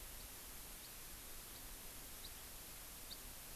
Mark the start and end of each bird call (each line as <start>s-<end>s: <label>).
2.2s-2.3s: House Finch (Haemorhous mexicanus)
3.1s-3.2s: House Finch (Haemorhous mexicanus)